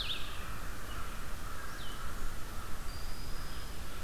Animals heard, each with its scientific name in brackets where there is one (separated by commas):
American Crow (Corvus brachyrhynchos), Red-eyed Vireo (Vireo olivaceus), Blue-headed Vireo (Vireo solitarius)